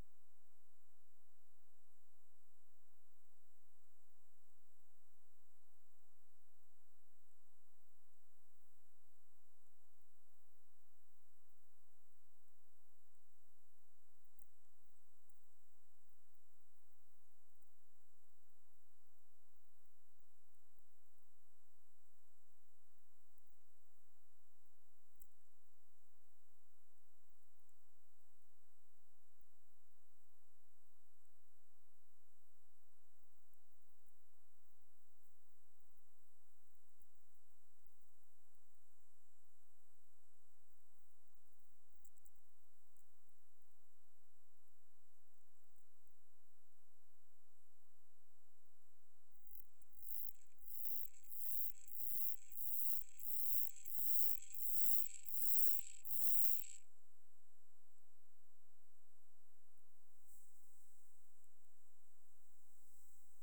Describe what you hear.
Myrmeleotettix maculatus, an orthopteran